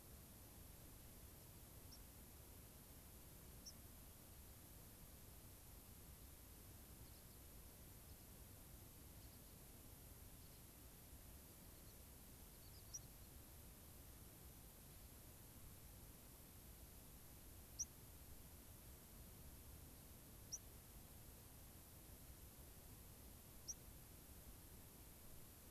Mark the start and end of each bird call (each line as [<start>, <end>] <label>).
[1.85, 2.05] White-crowned Sparrow (Zonotrichia leucophrys)
[3.65, 3.75] White-crowned Sparrow (Zonotrichia leucophrys)
[6.95, 7.35] American Pipit (Anthus rubescens)
[7.95, 8.25] American Pipit (Anthus rubescens)
[9.05, 9.65] American Pipit (Anthus rubescens)
[10.35, 10.75] American Pipit (Anthus rubescens)
[11.35, 12.15] American Pipit (Anthus rubescens)
[12.45, 13.35] American Pipit (Anthus rubescens)
[12.85, 13.05] White-crowned Sparrow (Zonotrichia leucophrys)
[17.65, 17.95] White-crowned Sparrow (Zonotrichia leucophrys)
[20.45, 20.65] White-crowned Sparrow (Zonotrichia leucophrys)
[23.55, 23.85] White-crowned Sparrow (Zonotrichia leucophrys)